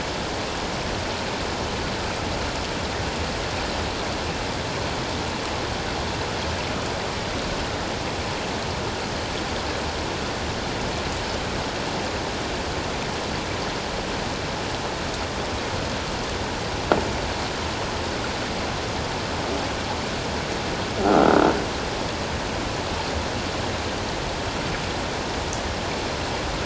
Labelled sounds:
21.0	21.4	croaking sound likely from a nearby submerged object, 1.2 to 1.5 kHz

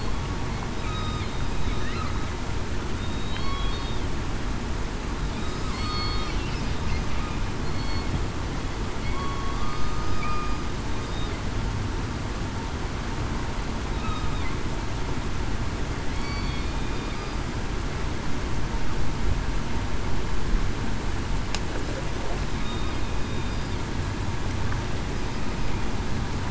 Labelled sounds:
0.8	1.2	killer whale, southern resident, 1.2 to 1.3 kHz
3.0	3.5	killer whale, southern resident, 3.7 to 3.9 kHz
5.7	6.4	killer whale, southern resident, 1.2 to 4.5 kHz
7.7	8.1	killer whale, southern resident, 4.3 to 4.4 kHz
9.1	10.5	killer whale, southern resident, 1.0 to 1.3 kHz
16.1	16.7	killer whale, southern resident, 4.4 to 4.6 kHz

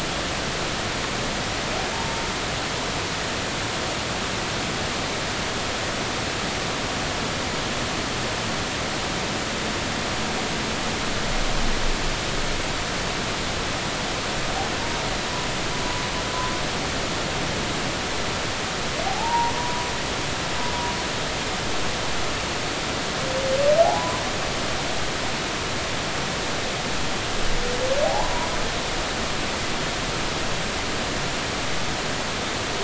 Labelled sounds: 19.0	19.8	humpback whale, 0.80 to 1.0 kHz
23.8	24.2	humpback whale, 0.80 to 1.1 kHz
28.0	28.5	humpback whale, 0.80 to 1.1 kHz

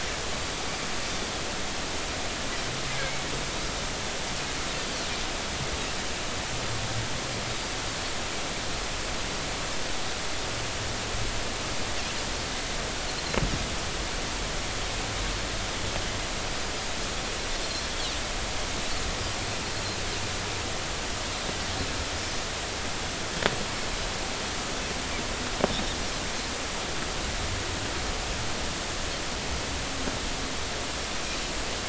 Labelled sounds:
3.0	3.2	Pacific white-sided dolphin, 2.1 to 2.3 kHz

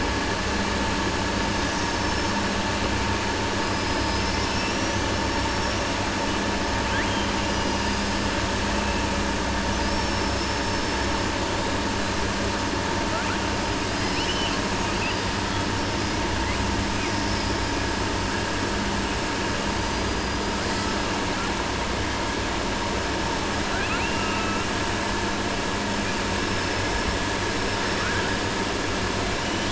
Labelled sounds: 9.7	10.9	killer whale, southern resident, 4.6 to 5.8 kHz
13.9	14.6	killer whale, southern resident, 2.1 to 6.1 kHz
23.6	24.6	killer whale, southern resident, 0.73 to 3.4 kHz
27.9	28.2	killer whale, southern resident, 0.88 to 2.5 kHz

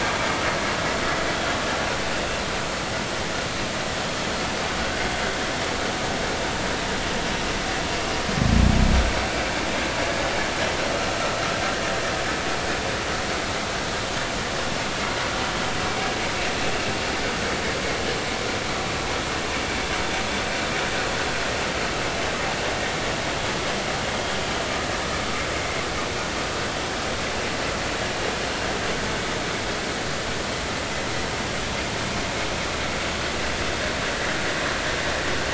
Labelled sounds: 4.8	5.1	vessel noise, 1.4 to 1.6 kHz

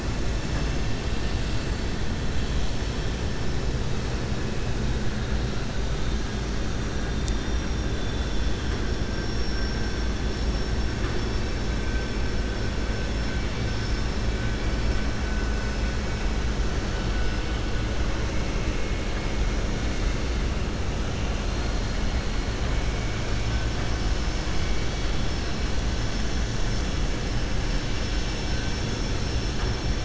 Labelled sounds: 7.9	8.8	vessel noise, 2.9 to 4.2 kHz
13.4	14.1	vessel noise, 3.6 to 5.7 kHz

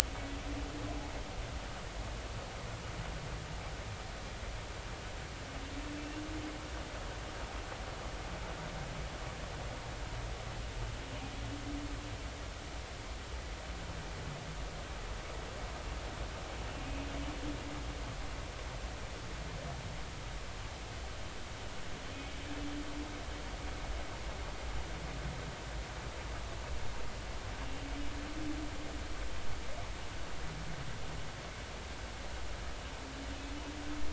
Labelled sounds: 6.0	6.2	humpback whale, 2.6 to 2.8 kHz

